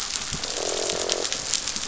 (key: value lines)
label: biophony, croak
recorder: SoundTrap 500